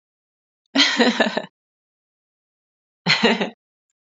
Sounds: Laughter